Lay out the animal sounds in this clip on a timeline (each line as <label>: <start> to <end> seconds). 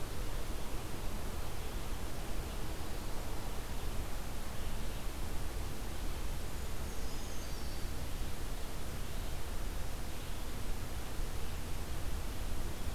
Red-eyed Vireo (Vireo olivaceus): 0.0 to 12.9 seconds
Brown Creeper (Certhia americana): 6.4 to 8.0 seconds